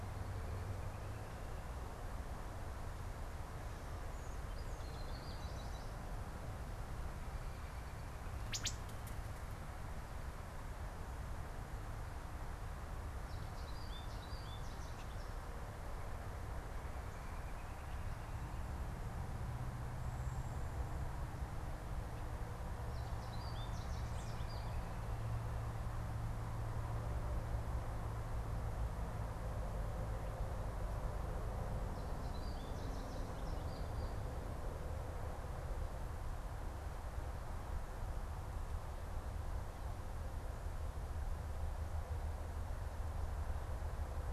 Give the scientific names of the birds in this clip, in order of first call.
Spinus tristis, Hylocichla mustelina